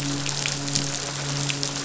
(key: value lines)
label: biophony, midshipman
recorder: SoundTrap 500